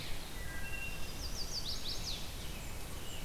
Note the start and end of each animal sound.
0.0s-3.2s: Blue-headed Vireo (Vireo solitarius)
0.3s-1.2s: Wood Thrush (Hylocichla mustelina)
0.9s-2.2s: Chestnut-sided Warbler (Setophaga pensylvanica)
2.3s-3.2s: Blackburnian Warbler (Setophaga fusca)
2.4s-3.2s: American Robin (Turdus migratorius)

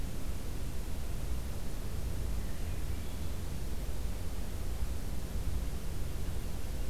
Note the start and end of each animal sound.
2.3s-3.6s: Swainson's Thrush (Catharus ustulatus)

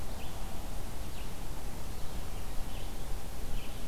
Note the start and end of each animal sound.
0.0s-3.9s: Red-eyed Vireo (Vireo olivaceus)

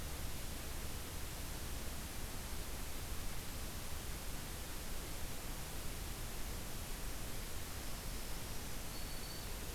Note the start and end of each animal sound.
7.8s-9.6s: Black-throated Green Warbler (Setophaga virens)

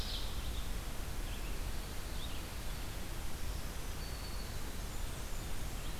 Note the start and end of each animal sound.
0.0s-0.5s: Ovenbird (Seiurus aurocapilla)
0.0s-6.0s: Red-eyed Vireo (Vireo olivaceus)
3.2s-4.8s: Black-throated Green Warbler (Setophaga virens)
4.6s-6.0s: Blackburnian Warbler (Setophaga fusca)

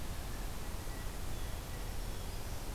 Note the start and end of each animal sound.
0.0s-2.0s: Blue Jay (Cyanocitta cristata)
1.8s-2.7s: Black-throated Green Warbler (Setophaga virens)

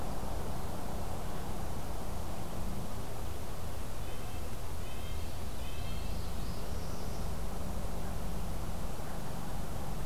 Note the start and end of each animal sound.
4.0s-6.2s: Red-breasted Nuthatch (Sitta canadensis)
5.8s-7.2s: Northern Parula (Setophaga americana)

